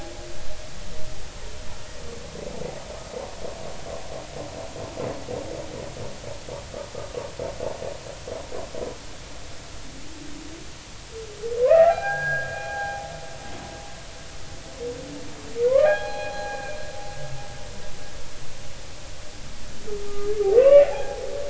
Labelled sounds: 11.6	13.1	humpback whale, 0.80 to 2.5 kHz
15.7	16.8	humpback whale, 0.80 to 4.2 kHz
20.1	21.2	humpback whale, 0.80 to 2.9 kHz

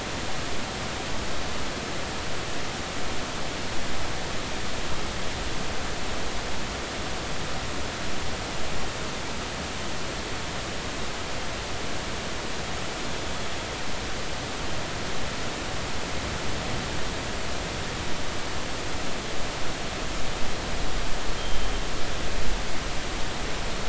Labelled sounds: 21.4	21.7	killer whale, 3.1 to 3.3 kHz

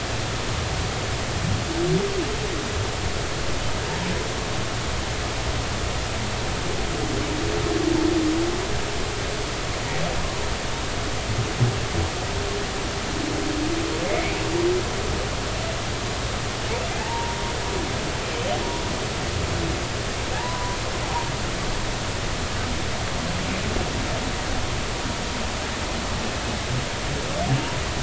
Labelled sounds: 14.1	14.3	humpback whale, 2.0 to 2.3 kHz
16.9	17.4	humpback whale, 0.80 to 0.99 kHz
20.3	20.8	humpback whale, 0.80 to 1.1 kHz

